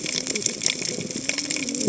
{"label": "biophony, cascading saw", "recorder": "HydroMoth"}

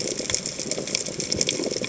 {"label": "biophony, chatter", "recorder": "HydroMoth"}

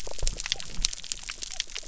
{"label": "biophony", "recorder": "SoundTrap 300"}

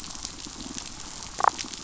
{"label": "biophony", "recorder": "SoundTrap 500"}
{"label": "biophony, damselfish", "recorder": "SoundTrap 500"}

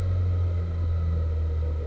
{"label": "anthrophony, boat engine", "recorder": "SoundTrap 300"}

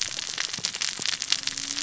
{"label": "biophony, cascading saw", "recorder": "SoundTrap 600 or HydroMoth"}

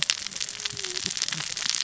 {"label": "biophony, cascading saw", "recorder": "SoundTrap 600 or HydroMoth"}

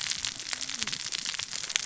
{"label": "biophony, cascading saw", "recorder": "SoundTrap 600 or HydroMoth"}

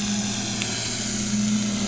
{"label": "anthrophony, boat engine", "recorder": "SoundTrap 500"}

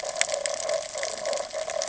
{"label": "ambient", "recorder": "HydroMoth"}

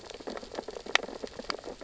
{"label": "biophony, sea urchins (Echinidae)", "recorder": "SoundTrap 600 or HydroMoth"}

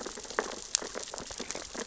{"label": "biophony, sea urchins (Echinidae)", "recorder": "SoundTrap 600 or HydroMoth"}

